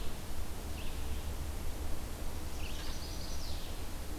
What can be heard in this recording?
Red-eyed Vireo, Chestnut-sided Warbler